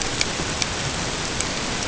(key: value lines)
label: ambient
recorder: HydroMoth